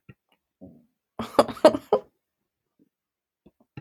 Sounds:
Laughter